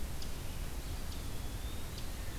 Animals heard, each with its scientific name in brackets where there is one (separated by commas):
Eastern Wood-Pewee (Contopus virens)